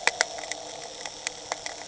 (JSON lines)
{"label": "anthrophony, boat engine", "recorder": "HydroMoth"}